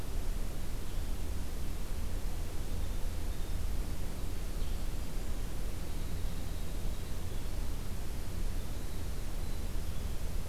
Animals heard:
Winter Wren (Troglodytes hiemalis)

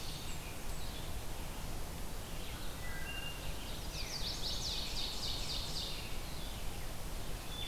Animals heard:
American Robin (Turdus migratorius), Chestnut-sided Warbler (Setophaga pensylvanica), Blue-headed Vireo (Vireo solitarius), Wood Thrush (Hylocichla mustelina), Ovenbird (Seiurus aurocapilla), Blackburnian Warbler (Setophaga fusca)

